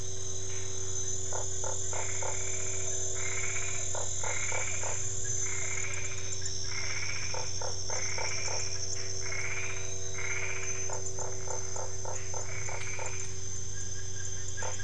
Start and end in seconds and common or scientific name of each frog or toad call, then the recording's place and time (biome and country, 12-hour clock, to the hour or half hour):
1.3	2.4	Usina tree frog
1.9	10.9	Boana albopunctata
3.9	5.0	Usina tree frog
5.9	9.0	Dendropsophus cruzi
7.3	8.6	Usina tree frog
10.6	14.8	Dendropsophus cruzi
10.9	13.1	Usina tree frog
12.4	13.3	Boana albopunctata
Cerrado, Brazil, 7pm